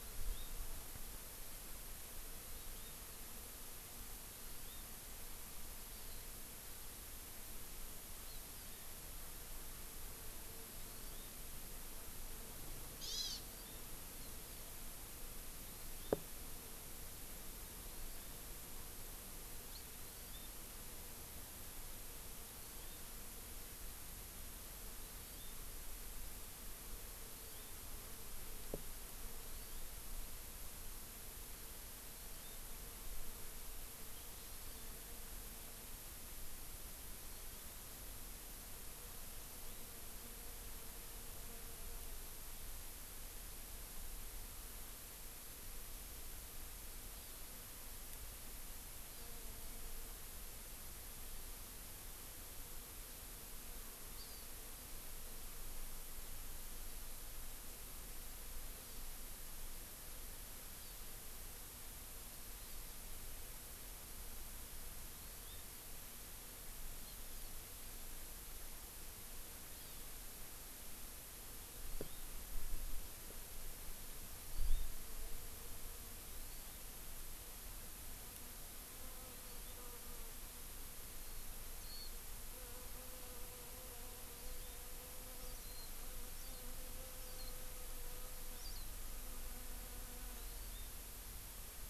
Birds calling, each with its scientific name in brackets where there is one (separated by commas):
Warbling White-eye (Zosterops japonicus), House Finch (Haemorhous mexicanus), Hawaii Amakihi (Chlorodrepanis virens)